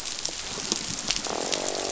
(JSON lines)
{"label": "biophony, croak", "recorder": "SoundTrap 500"}
{"label": "biophony", "recorder": "SoundTrap 500"}